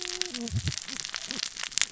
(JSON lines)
{"label": "biophony, cascading saw", "recorder": "SoundTrap 600 or HydroMoth"}